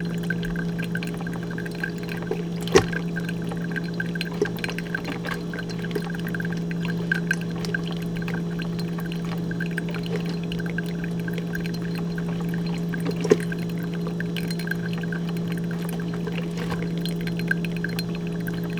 Is a vehicle heard?
no